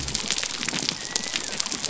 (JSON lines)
{"label": "biophony", "recorder": "SoundTrap 300"}